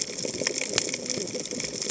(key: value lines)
label: biophony, cascading saw
recorder: HydroMoth